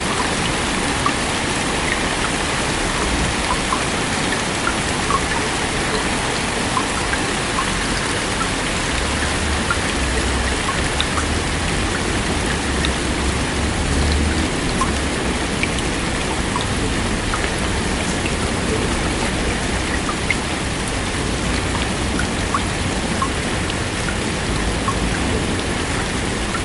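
Intense rain falling. 0:00.0 - 0:26.6

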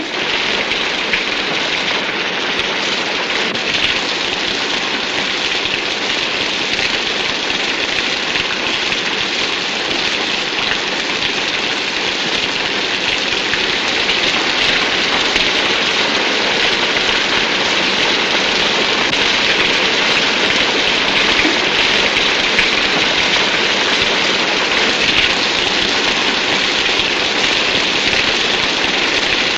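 Quick, heavy rainfall in the distance. 0:00.0 - 0:29.6

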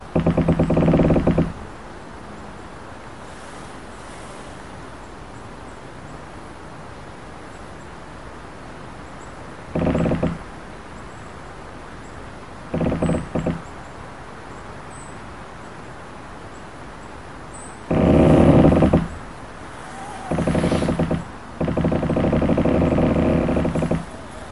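Tree creaks and soft wind blows with deep wooden sounds and light natural movement. 0:00.0 - 0:24.4
A deep wooden creak, like a rope straining or a tree shifting in the wind. 0:00.1 - 0:01.7
Soft wind blows through trees with a gentle whooshing sound. 0:01.9 - 0:09.1
A deep wooden creak, like a rope straining or a tree shifting in the wind. 0:09.7 - 0:10.5
A deep wooden creak, like a rope straining or a tree shifting in the wind. 0:12.7 - 0:13.7
Deep wooden creaking, like a rope straining or a tree shifting in the wind. 0:17.8 - 0:19.1
A deep wooden creak, like a rope straining or a tree shifting in the wind. 0:20.3 - 0:24.2

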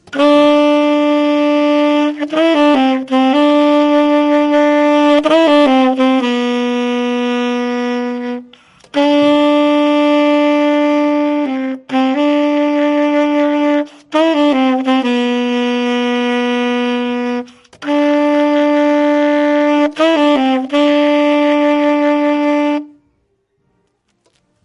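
A saxophone plays a melody. 0:00.0 - 0:24.6

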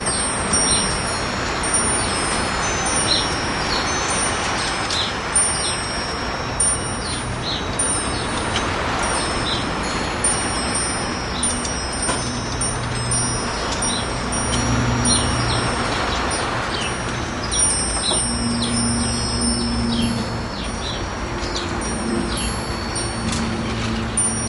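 Wind chimes are chiming continuously. 0:00.0 - 0:24.5
Wind whistles constantly. 0:00.0 - 0:24.5
Birds chirping outdoors. 0:00.2 - 0:01.3
Birds chirping outdoors. 0:03.2 - 0:06.1
Birds chirping outdoors. 0:07.1 - 0:08.4
Birds chirping outdoors. 0:09.4 - 0:12.1
Birds chirping outdoors. 0:13.3 - 0:14.8
Birds chirping outdoors. 0:15.6 - 0:16.4
Birds chirping outdoors. 0:17.0 - 0:20.3

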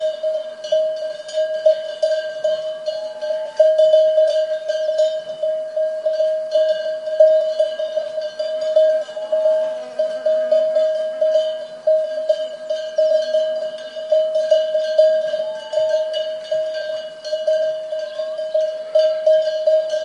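Continuous and irregular ringing of cowbells. 0:00.0 - 0:20.0
A person is whistling in the background. 0:02.4 - 0:03.9
A fly buzzes around. 0:08.7 - 0:12.1
A person is whistling in the background. 0:15.5 - 0:16.3
A person is whistling in the background. 0:18.1 - 0:18.6
A sheep baas in the distance. 0:18.7 - 0:19.2

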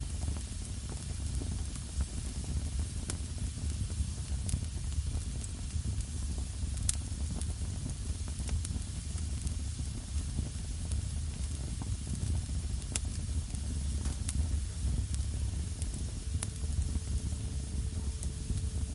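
A fire burns continuously in a fireplace, producing crackling and popping sounds. 0:00.0 - 0:18.9

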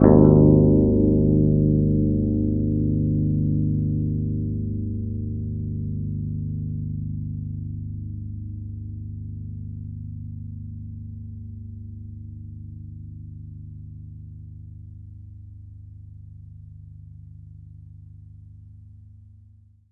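A baritone 7-string guitar plays deep, resonant chords and rich low single notes, filling the room with its extended tonal range. 0:00.1 - 0:19.9

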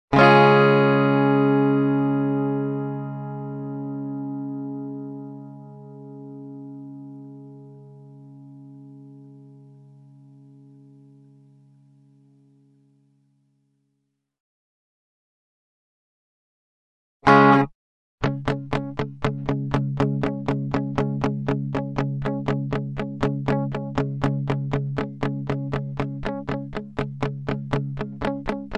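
A guitar is strummed once with the sound gradually decreasing in volume. 0:00.0 - 0:09.9
A guitar is played once. 0:17.3 - 0:17.8
A guitar is playing a steady pattern. 0:18.2 - 0:28.8

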